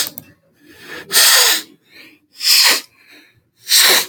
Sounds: Sniff